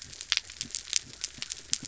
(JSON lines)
{"label": "biophony", "recorder": "SoundTrap 300"}